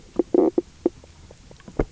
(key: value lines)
label: biophony, knock croak
recorder: SoundTrap 300